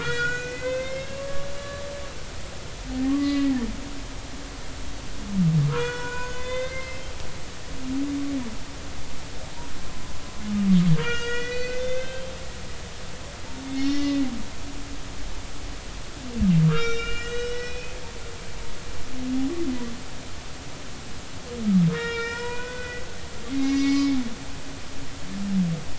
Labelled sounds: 0.0	1.8	humpback whale, 0.96 to 6.9 kHz
3.1	3.5	humpback whale, 1.0 to 2.0 kHz
5.7	7.0	humpback whale, 0.93 to 5.3 kHz
11.0	12.3	humpback whale, 1.3 to 6.8 kHz
13.7	14.2	humpback whale, 1.9 to 5.6 kHz
16.7	18.0	humpback whale, 1.1 to 5.6 kHz
21.9	23.0	humpback whale, 0.90 to 5.3 kHz
23.5	24.2	humpback whale, 1.1 to 6.9 kHz

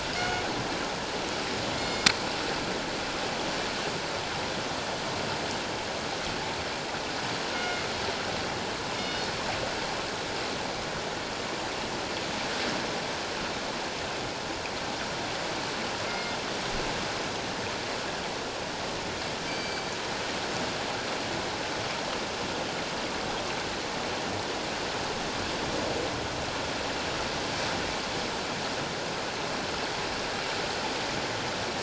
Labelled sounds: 0.1	0.4	killer whale, northern resident, G clan, call N24ii, 1.4 to 2.9 kHz
1.7	2.1	killer whale, northern resident, G clan, call N24ii, 2.1 to 7.3 kHz
7.5	7.9	killer whale, northern resident, G clan, call N24ii, 1.4 to 2.9 kHz
9.0	9.3	killer whale, northern resident, G clan, call N24ii, 2.8 to 4.4 kHz
16.1	16.4	killer whale, northern resident, G clan, call N24ii, 2.1 to 5.0 kHz
19.5	19.9	killer whale, northern resident, G clan, call N24ii, 2.2 to 6.2 kHz

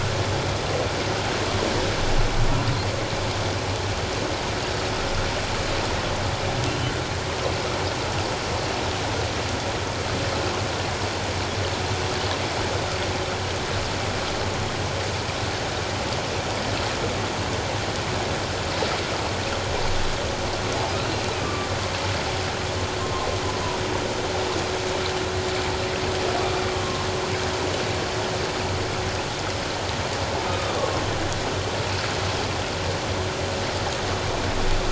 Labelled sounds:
21.4	21.7	humpback whale, 1.0 to 1.2 kHz
23.0	23.3	humpback whale, 1.0 to 1.1 kHz
30.5	30.8	humpback whale, 1.1 to 1.3 kHz

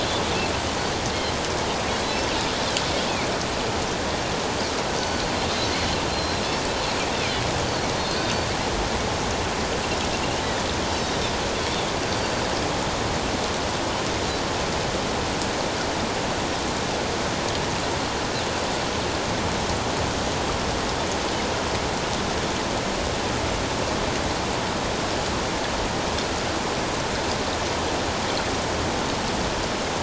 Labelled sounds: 6.1	6.8	Pacific white-sided dolphin, 4.1 to 4.6 kHz
8.2	8.5	Pacific white-sided dolphin, 4.4 to 4.6 kHz
11.0	12.3	Pacific white-sided dolphin, 3.5 to 4.8 kHz

